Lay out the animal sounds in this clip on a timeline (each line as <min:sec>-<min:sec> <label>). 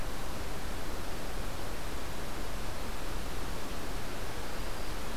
0:03.9-0:05.0 Black-throated Green Warbler (Setophaga virens)